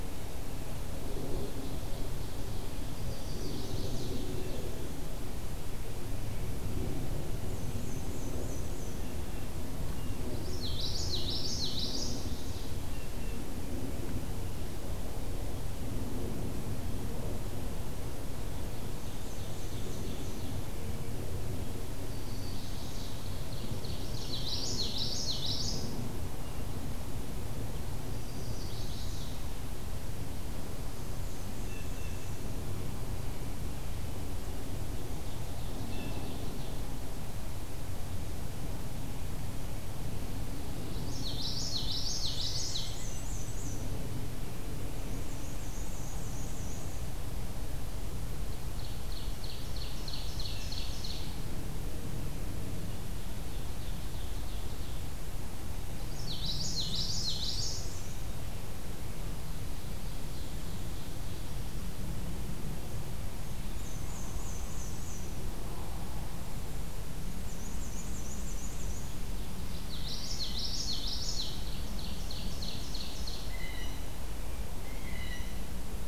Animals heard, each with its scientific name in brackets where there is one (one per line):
Blue Jay (Cyanocitta cristata)
Black-and-white Warbler (Mniotilta varia)
Ovenbird (Seiurus aurocapilla)
Chestnut-sided Warbler (Setophaga pensylvanica)
Common Yellowthroat (Geothlypis trichas)